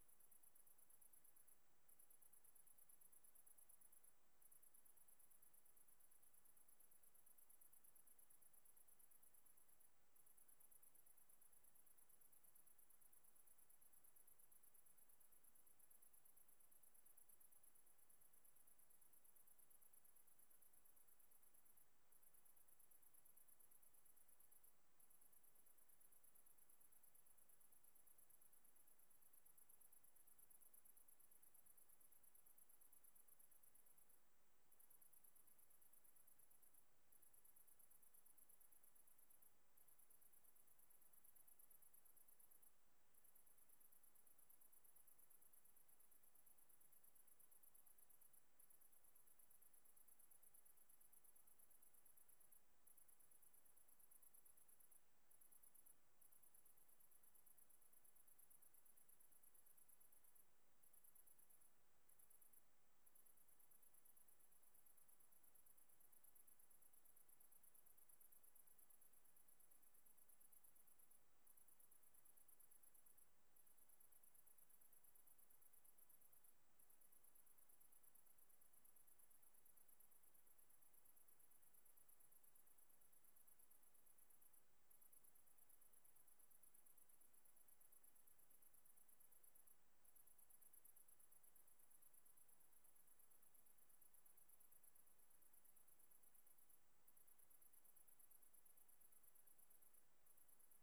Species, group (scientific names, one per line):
Tettigonia viridissima
Orthoptera